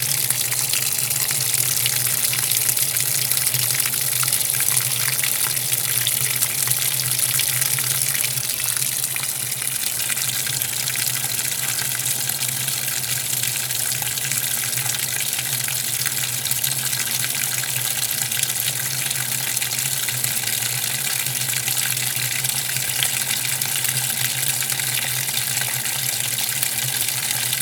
Is the water falling the only real identifiable sound?
yes